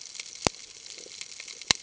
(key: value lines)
label: ambient
recorder: HydroMoth